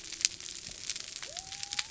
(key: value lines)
label: biophony
recorder: SoundTrap 300